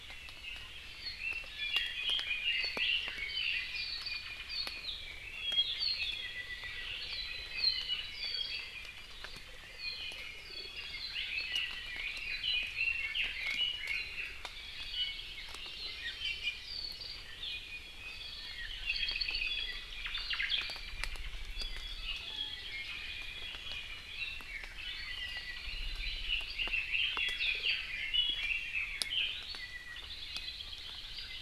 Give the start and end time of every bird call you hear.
1.0s-3.9s: Red-billed Leiothrix (Leiothrix lutea)
5.2s-9.0s: Apapane (Himatione sanguinea)
9.7s-11.9s: Apapane (Himatione sanguinea)
11.9s-14.3s: Red-billed Leiothrix (Leiothrix lutea)
14.9s-15.2s: Iiwi (Drepanis coccinea)
15.1s-16.2s: Hawaii Amakihi (Chlorodrepanis virens)
16.2s-16.6s: Iiwi (Drepanis coccinea)
17.4s-18.2s: Iiwi (Drepanis coccinea)
18.8s-19.8s: Apapane (Himatione sanguinea)
20.0s-20.5s: Omao (Myadestes obscurus)
21.5s-24.0s: Apapane (Himatione sanguinea)
24.7s-26.2s: Apapane (Himatione sanguinea)
26.2s-29.1s: Red-billed Leiothrix (Leiothrix lutea)
29.6s-30.0s: Iiwi (Drepanis coccinea)
30.0s-31.4s: Hawaii Creeper (Loxops mana)

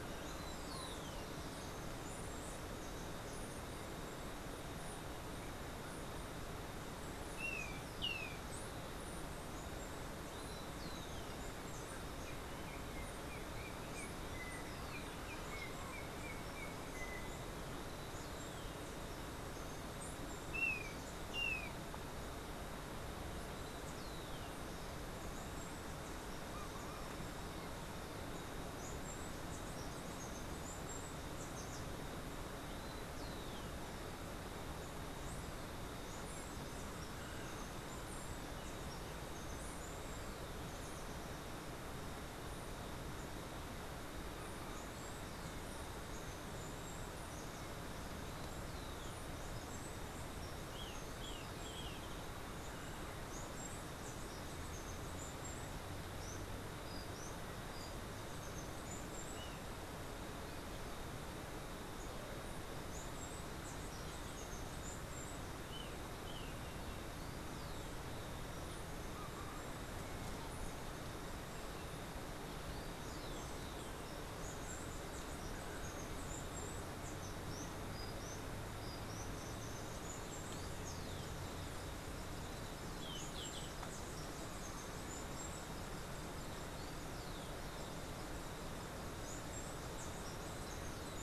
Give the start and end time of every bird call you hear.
0.0s-4.9s: Steely-vented Hummingbird (Saucerottia saucerottei)
7.2s-8.5s: Golden-faced Tyrannulet (Zimmerius chrysops)
12.1s-17.5s: Yellow-backed Oriole (Icterus chrysater)
20.5s-21.8s: Golden-faced Tyrannulet (Zimmerius chrysops)
28.4s-41.3s: Steely-vented Hummingbird (Saucerottia saucerottei)
44.4s-67.1s: Steely-vented Hummingbird (Saucerottia saucerottei)
50.7s-52.1s: Golden-faced Tyrannulet (Zimmerius chrysops)
65.7s-66.7s: Golden-faced Tyrannulet (Zimmerius chrysops)
72.6s-91.2s: Steely-vented Hummingbird (Saucerottia saucerottei)

